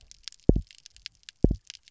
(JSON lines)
{"label": "biophony, double pulse", "recorder": "SoundTrap 300"}